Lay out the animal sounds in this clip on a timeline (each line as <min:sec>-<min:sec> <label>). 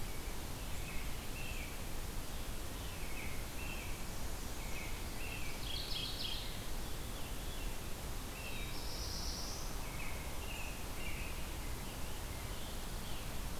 0:00.6-0:01.8 American Robin (Turdus migratorius)
0:02.6-0:04.0 American Robin (Turdus migratorius)
0:04.6-0:05.6 American Robin (Turdus migratorius)
0:05.3-0:06.8 Mourning Warbler (Geothlypis philadelphia)
0:06.7-0:07.9 Veery (Catharus fuscescens)
0:08.1-0:08.9 American Robin (Turdus migratorius)
0:08.2-0:09.9 Black-throated Blue Warbler (Setophaga caerulescens)
0:09.7-0:11.5 American Robin (Turdus migratorius)
0:11.7-0:13.4 Scarlet Tanager (Piranga olivacea)